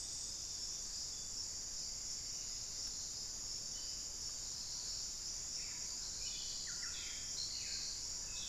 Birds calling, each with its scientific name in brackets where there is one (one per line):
Buff-breasted Wren (Cantorchilus leucotis)
unidentified bird